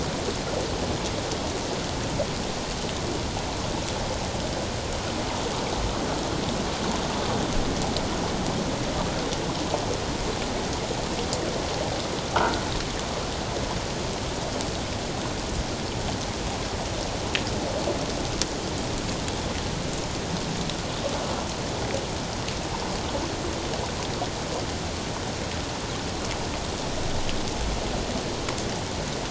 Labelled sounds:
12.4	12.6	croaking sound likely from a nearby submerged object, 1.3 to 1.6 kHz

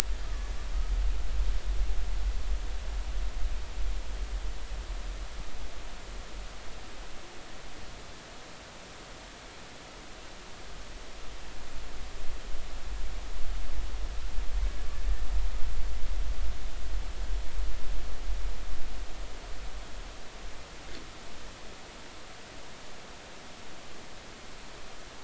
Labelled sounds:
0.2	0.5	humpback whale, 1.1 to 1.3 kHz

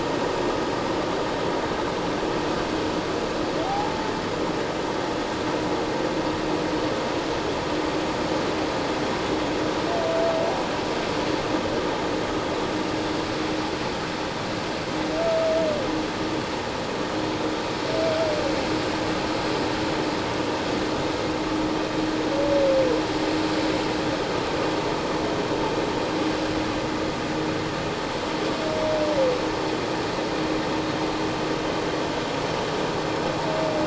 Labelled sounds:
3.6	4.1	humpback whale, 0.78 to 0.94 kHz

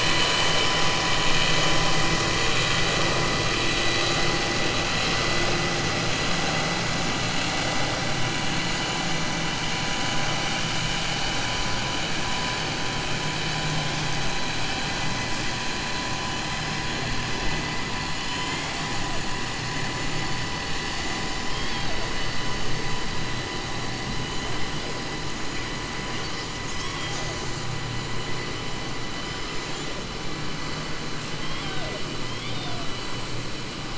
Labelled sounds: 18.3	18.7	killer whale, southern resident, 1.4 to 3.2 kHz
21.4	22.0	killer whale, southern resident, 0.61 to 5.4 kHz
32.2	32.8	killer whale, southern resident, 2.1 to 4.4 kHz

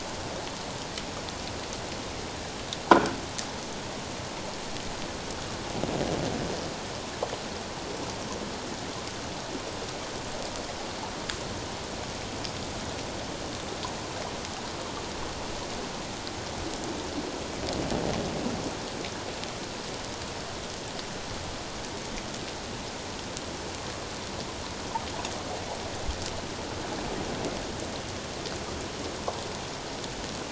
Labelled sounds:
2.9	3.2	metallic clang, 1.3 to 1.6 kHz

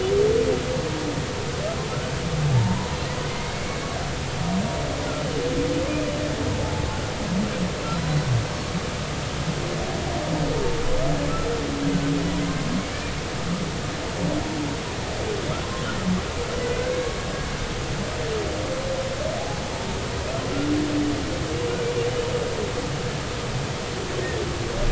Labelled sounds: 2.5	2.9	humpback whale, 0.86 to 1.1 kHz
4.3	6.1	humpback whale, 2.0 to 2.5 kHz

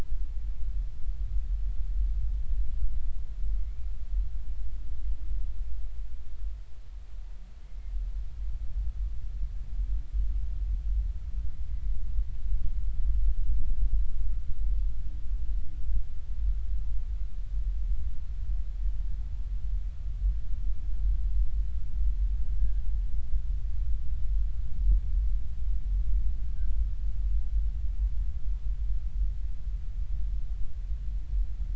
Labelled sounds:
7.6	7.9	humpback whale, 2.0 to 2.2 kHz

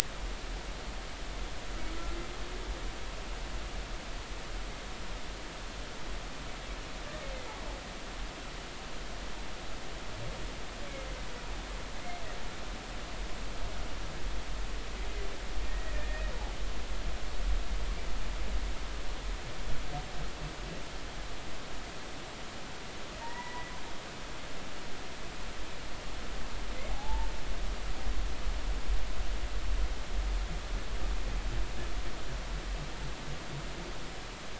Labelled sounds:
15.7	16.3	humpback whale, 1.6 to 2.6 kHz
23.2	23.7	humpback whale, 0.86 to 2.0 kHz
26.9	27.3	humpback whale, 0.80 to 0.96 kHz

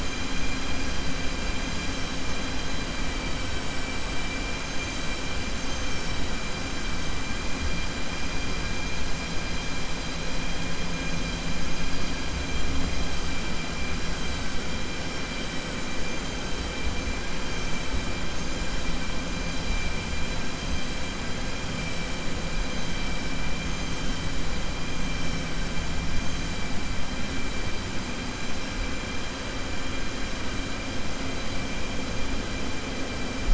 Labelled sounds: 5.5	6.2	vessel noise, 4.6 to 7.3 kHz

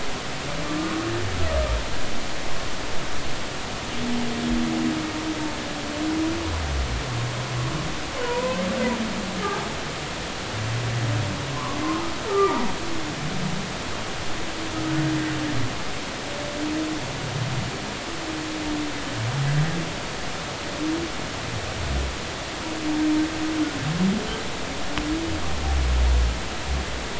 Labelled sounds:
0.6	1.0	humpback whale, 1.1 to 1.3 kHz
8.2	8.6	humpback whale, 0.90 to 1.1 kHz
11.5	12.7	humpback whale, 0.86 to 1.4 kHz

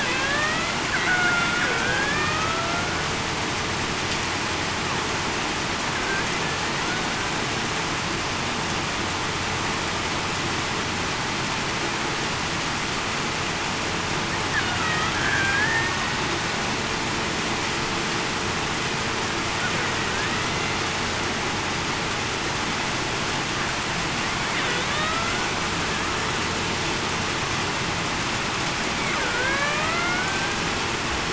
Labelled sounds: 0.1	0.7	killer whale, Bigg's (transient), 1.1 to 2.1 kHz
1.1	2.8	killer whale, Bigg's (transient), 0.66 to 3.6 kHz
14.8	16.0	killer whale, Bigg's (transient), 1.2 to 1.9 kHz
24.9	25.5	killer whale, Bigg's (transient), 1.1 to 1.5 kHz
29.3	30.2	killer whale, Bigg's (transient), 1.4 to 2.2 kHz

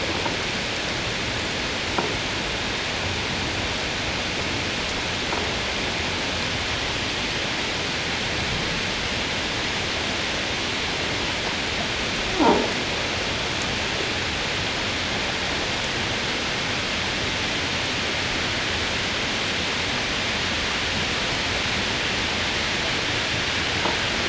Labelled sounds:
12.4	12.7	croaking sound likely from a nearby submerged object, 0.78 to 1.1 kHz

